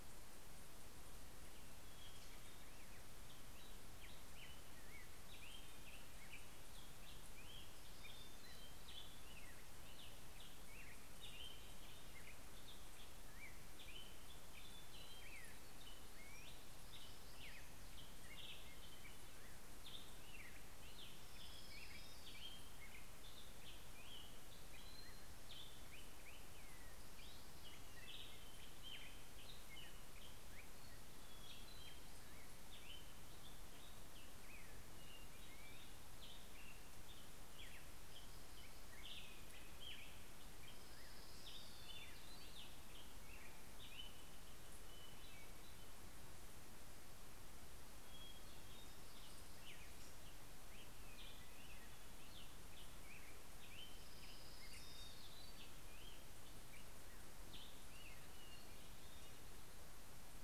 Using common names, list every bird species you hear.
Black-headed Grosbeak, MacGillivray's Warbler, Orange-crowned Warbler, Hermit Thrush